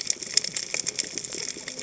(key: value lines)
label: biophony, cascading saw
recorder: HydroMoth